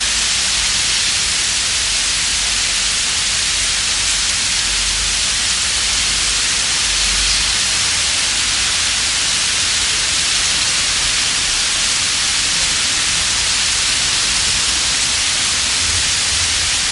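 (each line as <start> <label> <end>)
0.0 Heavy rain is falling steadily. 16.9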